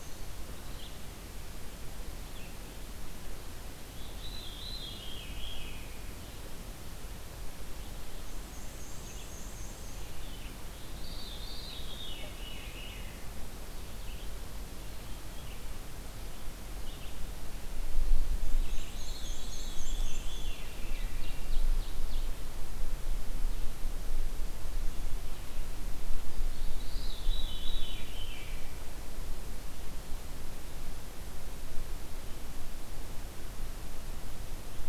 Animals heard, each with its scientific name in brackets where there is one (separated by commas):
Red-eyed Vireo (Vireo olivaceus), Veery (Catharus fuscescens), Black-and-white Warbler (Mniotilta varia), Ovenbird (Seiurus aurocapilla)